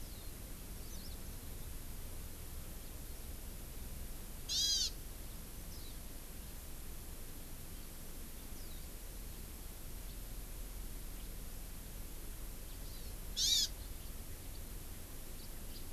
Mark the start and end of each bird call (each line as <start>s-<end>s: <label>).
0.0s-0.3s: Warbling White-eye (Zosterops japonicus)
4.5s-4.9s: Hawaiian Hawk (Buteo solitarius)
5.7s-6.0s: Warbling White-eye (Zosterops japonicus)
12.8s-13.1s: Hawaii Amakihi (Chlorodrepanis virens)
13.4s-13.7s: Hawaii Amakihi (Chlorodrepanis virens)
15.4s-15.8s: House Finch (Haemorhous mexicanus)